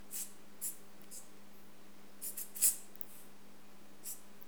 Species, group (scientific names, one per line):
Isophya rhodopensis
Orthoptera